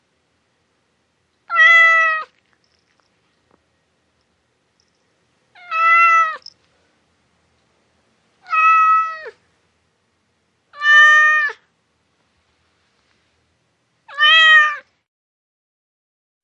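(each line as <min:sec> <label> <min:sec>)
0:01.5 A cat meows. 0:02.3
0:05.5 A cat meows. 0:06.5
0:08.4 A cat meows. 0:09.3
0:10.7 A cat meows. 0:11.6
0:14.0 A cat meows. 0:14.8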